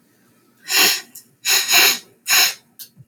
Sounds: Sniff